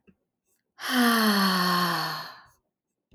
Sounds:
Sigh